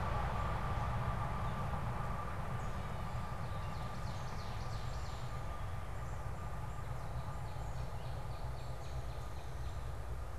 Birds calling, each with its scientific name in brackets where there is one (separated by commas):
Ovenbird (Seiurus aurocapilla), Gray Catbird (Dumetella carolinensis), Northern Cardinal (Cardinalis cardinalis)